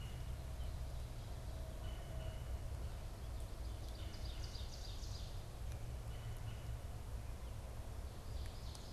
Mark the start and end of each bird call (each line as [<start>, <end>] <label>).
[0.00, 0.80] Red-bellied Woodpecker (Melanerpes carolinus)
[1.60, 8.92] Red-bellied Woodpecker (Melanerpes carolinus)
[3.50, 5.50] Ovenbird (Seiurus aurocapilla)
[8.30, 8.92] Ovenbird (Seiurus aurocapilla)